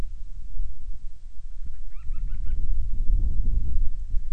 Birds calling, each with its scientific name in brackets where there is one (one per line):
Band-rumped Storm-Petrel (Hydrobates castro)